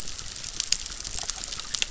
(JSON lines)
{"label": "biophony, chorus", "recorder": "SoundTrap 600"}